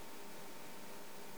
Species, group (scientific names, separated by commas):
Poecilimon thoracicus, Orthoptera